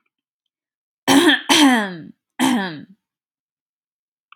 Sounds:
Throat clearing